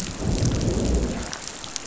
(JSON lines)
{"label": "biophony, growl", "recorder": "SoundTrap 500"}